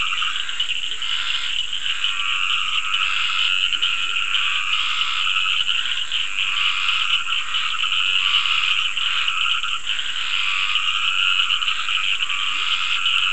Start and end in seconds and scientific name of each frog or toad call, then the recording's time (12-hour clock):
0.0	0.6	Rhinella icterica
0.0	13.3	Dendropsophus nahdereri
0.0	13.3	Scinax perereca
0.0	13.3	Sphaenorhynchus surdus
3.7	4.2	Leptodactylus latrans
12.5	12.7	Leptodactylus latrans
7:30pm